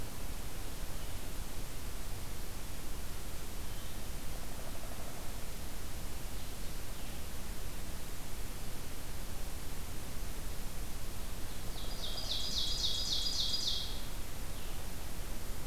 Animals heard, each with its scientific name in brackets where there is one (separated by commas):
Downy Woodpecker (Dryobates pubescens), Blue-headed Vireo (Vireo solitarius), Ovenbird (Seiurus aurocapilla)